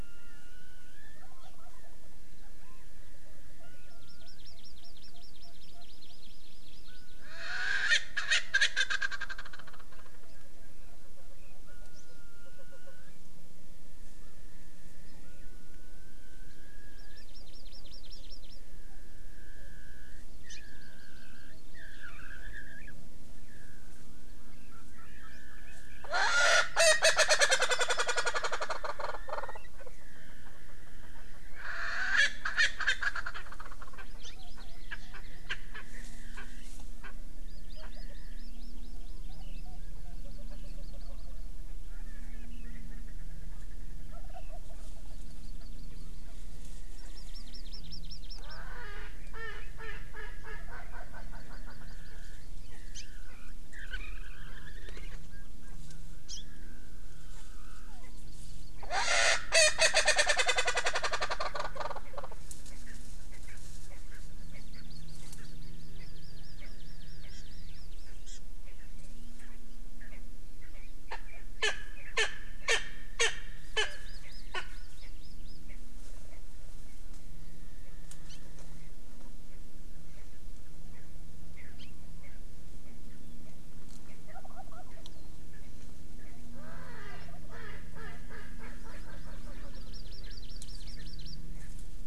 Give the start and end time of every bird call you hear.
1.0s-2.0s: Wild Turkey (Meleagris gallopavo)
2.4s-2.9s: Chinese Hwamei (Garrulax canorus)
3.9s-7.3s: Hawaii Amakihi (Chlorodrepanis virens)
4.7s-5.9s: Erckel's Francolin (Pternistis erckelii)
7.2s-10.3s: Erckel's Francolin (Pternistis erckelii)
17.0s-18.6s: Hawaii Amakihi (Chlorodrepanis virens)
20.5s-22.1s: Hawaii Amakihi (Chlorodrepanis virens)
26.0s-29.6s: Erckel's Francolin (Pternistis erckelii)
31.5s-34.1s: Erckel's Francolin (Pternistis erckelii)
34.2s-35.4s: Hawaii Amakihi (Chlorodrepanis virens)
34.9s-35.2s: Erckel's Francolin (Pternistis erckelii)
35.5s-35.8s: Erckel's Francolin (Pternistis erckelii)
37.0s-37.1s: Erckel's Francolin (Pternistis erckelii)
37.5s-39.7s: Hawaii Amakihi (Chlorodrepanis virens)
40.1s-41.5s: Hawaii Amakihi (Chlorodrepanis virens)
41.8s-44.0s: Erckel's Francolin (Pternistis erckelii)
44.1s-45.2s: Wild Turkey (Meleagris gallopavo)
45.1s-46.3s: Hawaii Amakihi (Chlorodrepanis virens)
47.0s-48.6s: Hawaii Amakihi (Chlorodrepanis virens)
48.4s-52.2s: Erckel's Francolin (Pternistis erckelii)
51.1s-53.1s: Hawaii Amakihi (Chlorodrepanis virens)
56.3s-56.4s: Hawaii Amakihi (Chlorodrepanis virens)
57.9s-58.9s: Hawaii Amakihi (Chlorodrepanis virens)
58.8s-62.3s: Erckel's Francolin (Pternistis erckelii)
62.7s-63.0s: Erckel's Francolin (Pternistis erckelii)
63.3s-63.6s: Erckel's Francolin (Pternistis erckelii)
63.9s-64.2s: Erckel's Francolin (Pternistis erckelii)
64.4s-68.4s: Hawaii Amakihi (Chlorodrepanis virens)
64.5s-64.8s: Erckel's Francolin (Pternistis erckelii)
65.4s-65.5s: Erckel's Francolin (Pternistis erckelii)
66.0s-66.1s: Erckel's Francolin (Pternistis erckelii)
66.6s-66.7s: Erckel's Francolin (Pternistis erckelii)
68.6s-68.9s: Erckel's Francolin (Pternistis erckelii)
69.4s-69.6s: Erckel's Francolin (Pternistis erckelii)
70.0s-70.2s: Erckel's Francolin (Pternistis erckelii)
70.6s-71.3s: Erckel's Francolin (Pternistis erckelii)
71.6s-71.7s: Erckel's Francolin (Pternistis erckelii)
72.2s-72.3s: Erckel's Francolin (Pternistis erckelii)
72.7s-72.8s: Erckel's Francolin (Pternistis erckelii)
73.2s-73.3s: Erckel's Francolin (Pternistis erckelii)
73.6s-75.6s: Hawaii Amakihi (Chlorodrepanis virens)
73.8s-73.9s: Erckel's Francolin (Pternistis erckelii)
74.5s-74.6s: Erckel's Francolin (Pternistis erckelii)
75.0s-75.1s: Erckel's Francolin (Pternistis erckelii)
75.7s-75.8s: Erckel's Francolin (Pternistis erckelii)
78.3s-78.4s: Hawaii Amakihi (Chlorodrepanis virens)
80.9s-81.1s: Erckel's Francolin (Pternistis erckelii)
81.8s-81.9s: Hawaii Amakihi (Chlorodrepanis virens)
82.2s-82.4s: Erckel's Francolin (Pternistis erckelii)
84.3s-85.0s: Wild Turkey (Meleagris gallopavo)
86.5s-89.9s: Erckel's Francolin (Pternistis erckelii)
89.7s-91.4s: Hawaii Amakihi (Chlorodrepanis virens)
90.2s-90.4s: Erckel's Francolin (Pternistis erckelii)
91.6s-91.7s: Erckel's Francolin (Pternistis erckelii)

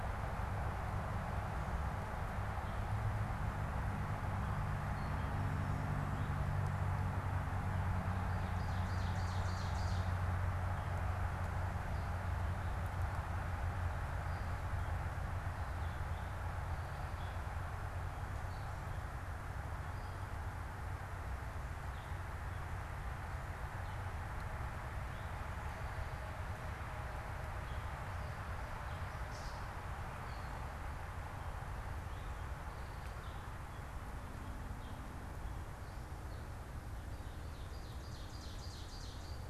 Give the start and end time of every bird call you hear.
0.0s-39.5s: Gray Catbird (Dumetella carolinensis)
8.3s-10.2s: Ovenbird (Seiurus aurocapilla)
37.3s-39.5s: Ovenbird (Seiurus aurocapilla)

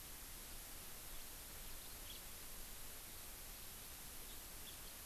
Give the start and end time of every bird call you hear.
2.0s-2.2s: House Finch (Haemorhous mexicanus)

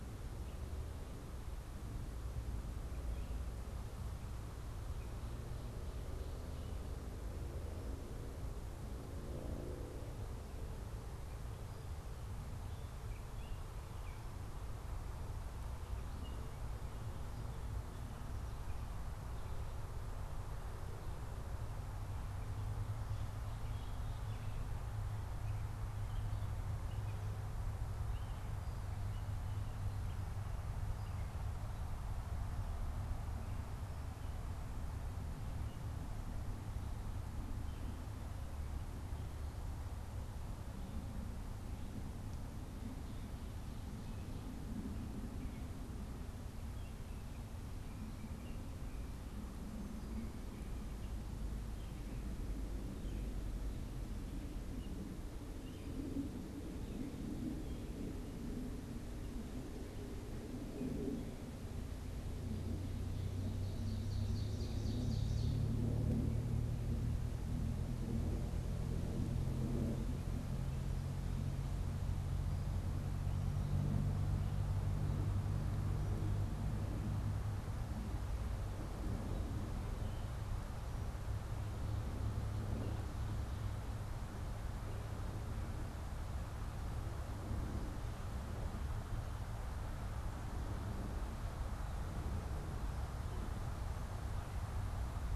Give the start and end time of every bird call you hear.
0.0s-16.9s: Gray Catbird (Dumetella carolinensis)
22.0s-31.7s: Gray Catbird (Dumetella carolinensis)
37.4s-61.4s: Gray Catbird (Dumetella carolinensis)
63.1s-65.7s: Ovenbird (Seiurus aurocapilla)

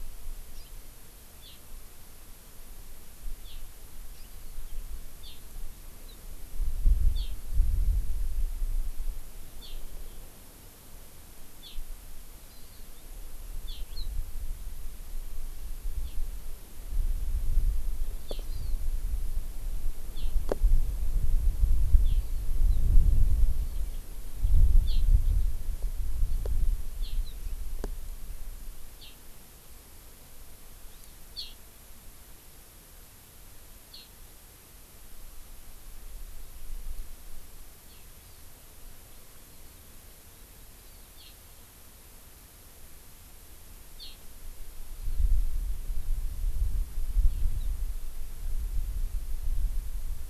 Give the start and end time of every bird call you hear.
0.5s-0.7s: Hawaii Amakihi (Chlorodrepanis virens)
12.4s-12.8s: Hawaii Amakihi (Chlorodrepanis virens)
18.4s-18.7s: Hawaii Amakihi (Chlorodrepanis virens)
30.9s-31.1s: Hawaii Amakihi (Chlorodrepanis virens)

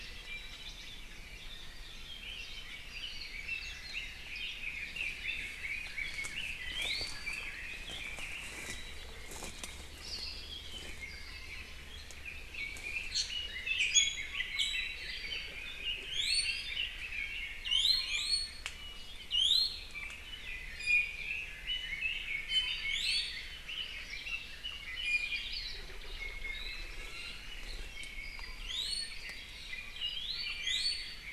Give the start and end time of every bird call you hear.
2.0s-8.8s: Red-billed Leiothrix (Leiothrix lutea)
6.5s-7.5s: Iiwi (Drepanis coccinea)
10.0s-10.6s: Hawaii Akepa (Loxops coccineus)
10.4s-11.9s: Apapane (Himatione sanguinea)
12.2s-17.6s: Red-billed Leiothrix (Leiothrix lutea)
13.0s-13.4s: Iiwi (Drepanis coccinea)
13.8s-15.6s: Iiwi (Drepanis coccinea)
16.0s-16.9s: Iiwi (Drepanis coccinea)
17.6s-18.7s: Iiwi (Drepanis coccinea)
19.3s-20.0s: Iiwi (Drepanis coccinea)
20.4s-22.9s: Red-billed Leiothrix (Leiothrix lutea)
20.7s-21.3s: Iiwi (Drepanis coccinea)
22.4s-23.7s: Iiwi (Drepanis coccinea)
23.6s-25.2s: Red-billed Leiothrix (Leiothrix lutea)
24.6s-25.5s: Iiwi (Drepanis coccinea)
25.5s-25.9s: Hawaii Akepa (Loxops coccineus)
26.2s-27.5s: Iiwi (Drepanis coccinea)
27.9s-28.9s: Apapane (Himatione sanguinea)
28.6s-29.2s: Iiwi (Drepanis coccinea)
29.9s-31.3s: Iiwi (Drepanis coccinea)

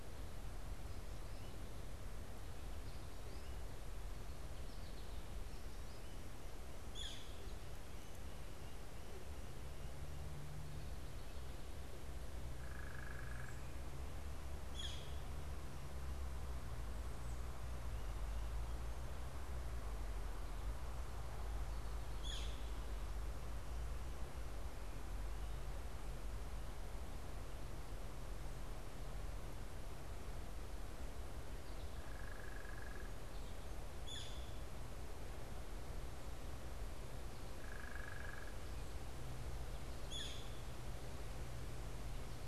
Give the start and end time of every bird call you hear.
6.8s-7.4s: Northern Flicker (Colaptes auratus)
12.4s-13.7s: unidentified bird
14.5s-15.3s: Northern Flicker (Colaptes auratus)
21.9s-22.7s: Northern Flicker (Colaptes auratus)
31.8s-33.3s: unidentified bird
33.8s-34.6s: Northern Flicker (Colaptes auratus)
37.4s-38.6s: unidentified bird
39.9s-40.7s: Northern Flicker (Colaptes auratus)

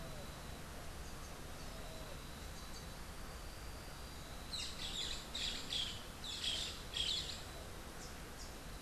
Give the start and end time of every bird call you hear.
4.4s-7.7s: Boat-billed Flycatcher (Megarynchus pitangua)

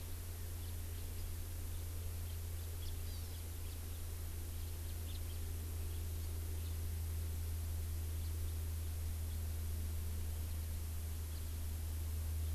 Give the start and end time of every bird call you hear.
0.6s-1.0s: House Finch (Haemorhous mexicanus)
2.2s-2.4s: House Finch (Haemorhous mexicanus)
2.7s-2.9s: House Finch (Haemorhous mexicanus)
3.0s-3.4s: Hawaii Amakihi (Chlorodrepanis virens)
3.6s-3.7s: House Finch (Haemorhous mexicanus)
4.8s-5.4s: House Finch (Haemorhous mexicanus)
8.2s-8.3s: House Finch (Haemorhous mexicanus)
11.3s-11.4s: House Finch (Haemorhous mexicanus)

